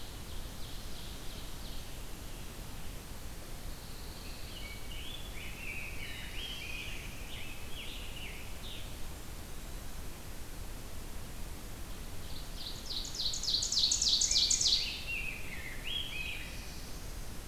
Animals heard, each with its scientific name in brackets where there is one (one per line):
Pine Warbler (Setophaga pinus)
Black-throated Blue Warbler (Setophaga caerulescens)
Rose-breasted Grosbeak (Pheucticus ludovicianus)
Ovenbird (Seiurus aurocapilla)
Scarlet Tanager (Piranga olivacea)